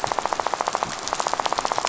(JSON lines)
{"label": "biophony, rattle", "recorder": "SoundTrap 500"}